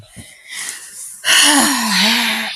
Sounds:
Sigh